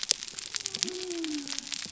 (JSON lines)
{"label": "biophony", "recorder": "SoundTrap 300"}